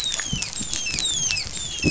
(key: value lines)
label: biophony, dolphin
recorder: SoundTrap 500